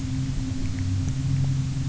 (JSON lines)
{"label": "anthrophony, boat engine", "recorder": "SoundTrap 300"}